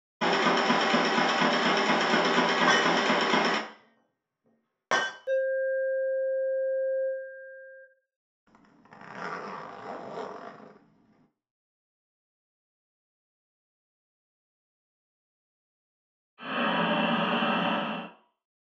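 First, at the start, you can hear an engine. Over it, about 3 seconds in, glass shatters. Then, about 5 seconds in, there is an alarm. After that, about 8 seconds in, a quiet zipper is audible. Finally, about 16 seconds in, someone breathes.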